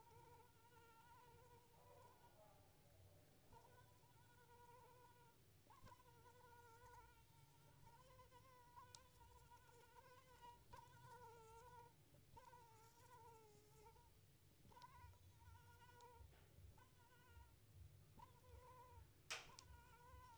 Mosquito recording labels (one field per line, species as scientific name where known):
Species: Anopheles arabiensis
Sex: female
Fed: unfed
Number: one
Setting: cup